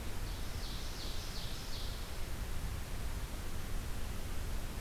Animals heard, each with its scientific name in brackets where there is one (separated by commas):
Ovenbird (Seiurus aurocapilla)